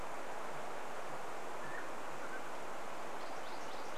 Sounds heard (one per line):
Mountain Quail call
MacGillivray's Warbler song